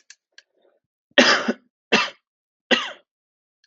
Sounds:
Cough